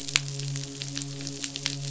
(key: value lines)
label: biophony, midshipman
recorder: SoundTrap 500